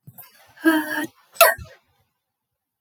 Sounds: Sneeze